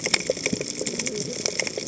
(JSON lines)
{"label": "biophony, cascading saw", "recorder": "HydroMoth"}